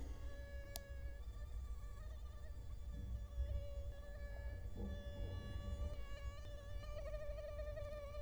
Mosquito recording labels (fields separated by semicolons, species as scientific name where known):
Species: Culex quinquefasciatus; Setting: cup